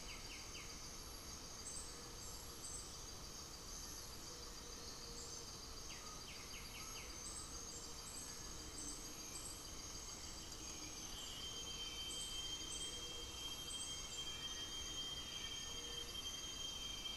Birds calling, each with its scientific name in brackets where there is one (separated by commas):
Undulated Tinamou (Crypturellus undulatus), White-winged Becard (Pachyramphus polychopterus), Black-faced Antthrush (Formicarius analis), Gray-fronted Dove (Leptotila rufaxilla)